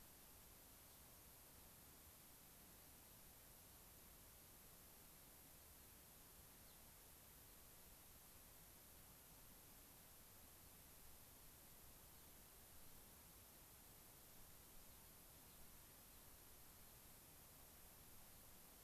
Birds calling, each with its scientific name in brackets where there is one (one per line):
Gray-crowned Rosy-Finch (Leucosticte tephrocotis)